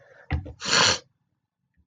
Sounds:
Sniff